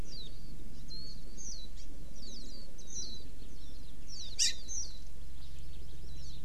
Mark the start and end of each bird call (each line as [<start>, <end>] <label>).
[0.00, 0.30] Warbling White-eye (Zosterops japonicus)
[0.90, 1.70] Warbling White-eye (Zosterops japonicus)
[1.70, 1.90] Hawaii Amakihi (Chlorodrepanis virens)
[2.10, 3.20] Warbling White-eye (Zosterops japonicus)
[4.00, 5.10] Warbling White-eye (Zosterops japonicus)
[4.40, 4.60] Hawaii Amakihi (Chlorodrepanis virens)
[6.00, 6.40] Warbling White-eye (Zosterops japonicus)